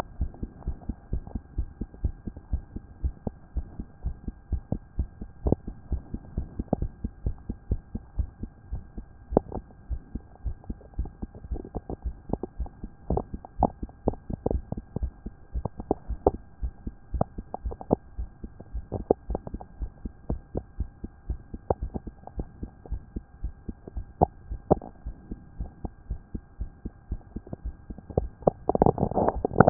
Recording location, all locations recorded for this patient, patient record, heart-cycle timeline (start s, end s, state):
mitral valve (MV)
pulmonary valve (PV)+tricuspid valve (TV)+mitral valve (MV)
#Age: Child
#Sex: Female
#Height: 150.0 cm
#Weight: 47.4 kg
#Pregnancy status: False
#Murmur: Present
#Murmur locations: pulmonary valve (PV)
#Most audible location: pulmonary valve (PV)
#Systolic murmur timing: Holosystolic
#Systolic murmur shape: Plateau
#Systolic murmur grading: I/VI
#Systolic murmur pitch: Low
#Systolic murmur quality: Blowing
#Diastolic murmur timing: nan
#Diastolic murmur shape: nan
#Diastolic murmur grading: nan
#Diastolic murmur pitch: nan
#Diastolic murmur quality: nan
#Outcome: Normal
#Campaign: 2014 screening campaign
0.00	0.12	unannotated
0.12	0.20	diastole
0.20	0.30	S1
0.30	0.42	systole
0.42	0.48	S2
0.48	0.66	diastole
0.66	0.76	S1
0.76	0.88	systole
0.88	0.96	S2
0.96	1.12	diastole
1.12	1.24	S1
1.24	1.34	systole
1.34	1.42	S2
1.42	1.56	diastole
1.56	1.68	S1
1.68	1.80	systole
1.80	1.88	S2
1.88	2.02	diastole
2.02	2.14	S1
2.14	2.26	systole
2.26	2.34	S2
2.34	2.52	diastole
2.52	2.62	S1
2.62	2.74	systole
2.74	2.82	S2
2.82	3.02	diastole
3.02	3.14	S1
3.14	3.26	systole
3.26	3.34	S2
3.34	3.54	diastole
3.54	3.66	S1
3.66	3.78	systole
3.78	3.86	S2
3.86	4.04	diastole
4.04	4.16	S1
4.16	4.26	systole
4.26	4.34	S2
4.34	4.50	diastole
4.50	4.62	S1
4.62	4.72	systole
4.72	4.80	S2
4.80	4.98	diastole
4.98	5.08	S1
5.08	5.20	systole
5.20	5.28	S2
5.28	5.44	diastole
5.44	5.58	S1
5.58	5.66	systole
5.66	5.74	S2
5.74	5.90	diastole
5.90	6.02	S1
6.02	6.12	systole
6.12	6.20	S2
6.20	6.36	diastole
6.36	6.48	S1
6.48	6.58	systole
6.58	6.66	S2
6.66	6.80	diastole
6.80	6.90	S1
6.90	7.02	systole
7.02	7.12	S2
7.12	7.24	diastole
7.24	7.36	S1
7.36	7.48	systole
7.48	7.56	S2
7.56	7.70	diastole
7.70	7.80	S1
7.80	7.94	systole
7.94	8.02	S2
8.02	8.16	diastole
8.16	8.28	S1
8.28	8.42	systole
8.42	8.50	S2
8.50	8.70	diastole
8.70	8.82	S1
8.82	8.96	systole
8.96	9.06	S2
9.06	9.30	diastole
9.30	9.44	S1
9.44	9.54	systole
9.54	9.64	S2
9.64	9.90	diastole
9.90	10.00	S1
10.00	10.14	systole
10.14	10.22	S2
10.22	10.44	diastole
10.44	10.56	S1
10.56	10.68	systole
10.68	10.78	S2
10.78	10.98	diastole
10.98	29.70	unannotated